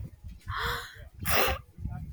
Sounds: Sneeze